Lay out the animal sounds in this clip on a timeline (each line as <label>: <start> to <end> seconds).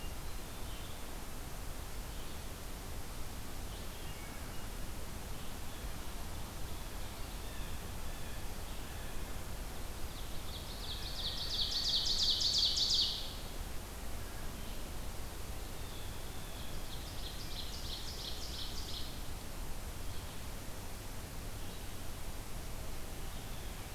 Hermit Thrush (Catharus guttatus): 0.0 to 0.8 seconds
Red-eyed Vireo (Vireo olivaceus): 0.0 to 23.9 seconds
Hermit Thrush (Catharus guttatus): 3.9 to 5.0 seconds
Blue Jay (Cyanocitta cristata): 7.3 to 9.2 seconds
Ovenbird (Seiurus aurocapilla): 10.0 to 13.4 seconds
Blue Jay (Cyanocitta cristata): 15.7 to 17.0 seconds
Ovenbird (Seiurus aurocapilla): 16.2 to 19.5 seconds